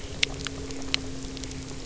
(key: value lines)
label: anthrophony, boat engine
recorder: SoundTrap 300